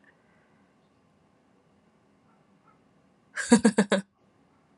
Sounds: Laughter